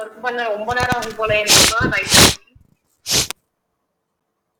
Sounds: Sniff